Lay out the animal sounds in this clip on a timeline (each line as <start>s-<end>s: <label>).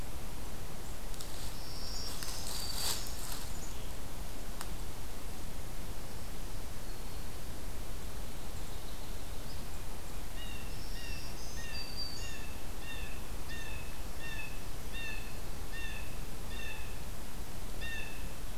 1.2s-3.0s: Black-throated Green Warbler (Setophaga virens)
5.9s-7.6s: Black-throated Green Warbler (Setophaga virens)
10.1s-18.6s: Blue Jay (Cyanocitta cristata)
10.5s-12.5s: Black-throated Green Warbler (Setophaga virens)